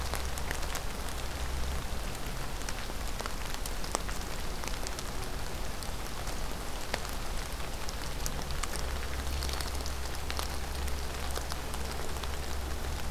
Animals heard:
forest ambience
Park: Acadia National Park